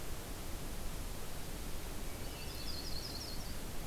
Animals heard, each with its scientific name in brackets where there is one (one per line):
Yellow-rumped Warbler (Setophaga coronata)
Hermit Thrush (Catharus guttatus)